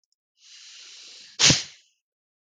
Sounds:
Sneeze